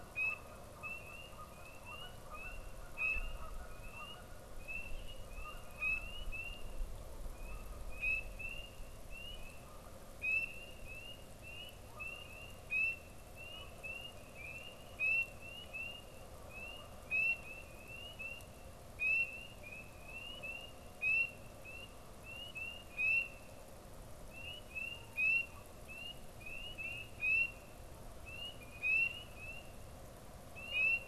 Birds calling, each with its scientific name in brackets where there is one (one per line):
Canada Goose (Branta canadensis)